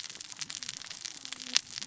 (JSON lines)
{"label": "biophony, cascading saw", "recorder": "SoundTrap 600 or HydroMoth"}